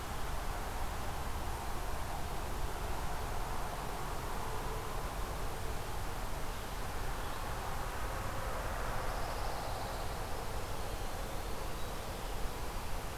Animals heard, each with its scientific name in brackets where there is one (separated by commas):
Winter Wren (Troglodytes hiemalis), Pine Warbler (Setophaga pinus)